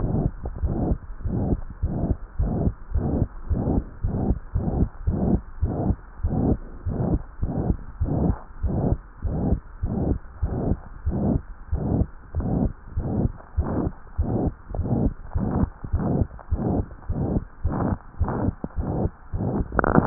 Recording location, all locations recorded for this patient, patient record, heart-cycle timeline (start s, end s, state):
tricuspid valve (TV)
aortic valve (AV)+pulmonary valve (PV)+tricuspid valve (TV)+mitral valve (MV)
#Age: Child
#Sex: Female
#Height: 112.0 cm
#Weight: 21.8 kg
#Pregnancy status: False
#Murmur: Present
#Murmur locations: aortic valve (AV)+mitral valve (MV)+pulmonary valve (PV)+tricuspid valve (TV)
#Most audible location: tricuspid valve (TV)
#Systolic murmur timing: Holosystolic
#Systolic murmur shape: Plateau
#Systolic murmur grading: III/VI or higher
#Systolic murmur pitch: High
#Systolic murmur quality: Harsh
#Diastolic murmur timing: nan
#Diastolic murmur shape: nan
#Diastolic murmur grading: nan
#Diastolic murmur pitch: nan
#Diastolic murmur quality: nan
#Outcome: Abnormal
#Campaign: 2015 screening campaign
0.00	1.00	unannotated
1.00	1.23	diastole
1.23	1.37	S1
1.37	1.50	systole
1.50	1.62	S2
1.62	1.80	diastole
1.80	1.90	S1
1.90	2.08	systole
2.08	2.18	S2
2.18	2.37	diastole
2.37	2.47	S1
2.47	2.64	systole
2.64	2.74	S2
2.74	2.93	diastole
2.93	3.01	S1
3.01	3.18	systole
3.18	3.28	S2
3.28	3.49	diastole
3.49	3.59	S1
3.59	3.70	systole
3.70	3.84	S2
3.84	4.01	diastole
4.01	4.14	S1
4.14	4.28	systole
4.28	4.40	S2
4.40	4.53	diastole
4.53	4.65	S1
4.65	4.78	systole
4.78	4.90	S2
4.90	5.04	diastole
5.04	5.14	S1
5.14	5.28	systole
5.28	5.40	S2
5.40	5.60	diastole
5.60	5.70	S1
5.70	5.86	systole
5.86	5.96	S2
5.96	6.22	diastole
6.22	6.31	S1
6.31	6.47	systole
6.47	6.58	S2
6.58	6.86	diastole
6.86	6.96	S1
6.96	7.09	systole
7.09	7.18	S2
7.18	7.42	diastole
7.42	7.51	S1
7.51	7.68	systole
7.68	7.82	S2
7.82	7.99	diastole
7.99	8.08	S1
8.08	8.24	systole
8.24	8.36	S2
8.36	8.60	diastole
8.60	8.72	S1
8.72	8.90	systole
8.90	9.02	S2
9.02	9.22	diastole
9.22	9.33	S1
9.33	9.50	systole
9.50	9.62	S2
9.62	9.80	diastole
9.80	9.91	S1
9.91	10.08	systole
10.08	10.20	S2
10.20	10.41	diastole
10.41	10.51	S1
10.51	10.68	systole
10.68	10.78	S2
10.78	11.06	diastole
11.06	11.20	S1
11.20	11.26	systole
11.26	11.42	S2
11.42	11.72	diastole
11.72	11.86	S1
11.86	11.94	systole
11.94	12.08	S2
12.08	12.36	diastole
12.36	12.47	S1
12.47	12.60	systole
12.60	12.71	S2
12.71	12.94	diastole
12.94	13.04	S1
13.04	13.21	systole
13.21	13.30	S2
13.30	13.56	diastole
13.56	13.68	S1
13.68	13.83	systole
13.83	13.92	S2
13.92	14.16	diastole
14.16	14.29	S1
14.29	14.40	systole
14.40	14.54	S2
14.54	14.78	diastole
14.78	14.92	S1
14.92	15.00	systole
15.00	15.12	S2
15.12	15.33	diastole
15.33	15.45	S1
15.45	15.59	systole
15.59	15.68	S2
15.68	15.92	diastole
15.92	16.03	S1
16.03	16.17	systole
16.17	16.28	S2
16.28	16.48	diastole
16.48	16.62	S1
16.62	16.76	systole
16.76	16.85	S2
16.85	17.07	diastole
17.07	17.17	S1
17.17	17.34	systole
17.34	17.40	S2
17.40	17.61	diastole
17.61	17.71	S1
17.71	17.88	systole
17.88	17.97	S2
17.97	18.20	diastole
18.20	18.32	S1
18.32	18.42	systole
18.42	18.56	S2
18.56	18.76	diastole
18.76	18.86	S1
18.86	19.00	systole
19.00	19.12	S2
19.12	19.31	diastole
19.31	19.43	S1
19.43	19.56	systole
19.56	19.69	S2
19.69	20.06	unannotated